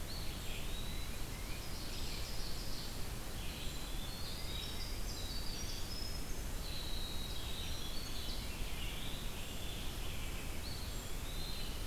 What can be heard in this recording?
Eastern Wood-Pewee, Red-eyed Vireo, Tufted Titmouse, Winter Wren